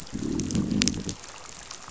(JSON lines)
{"label": "biophony, growl", "recorder": "SoundTrap 500"}